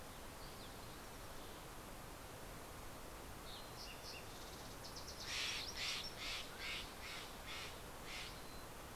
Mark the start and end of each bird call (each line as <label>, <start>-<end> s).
Fox Sparrow (Passerella iliaca), 2.3-6.2 s
Steller's Jay (Cyanocitta stelleri), 4.8-8.9 s
Mountain Quail (Oreortyx pictus), 6.1-7.0 s